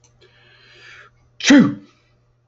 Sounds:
Sneeze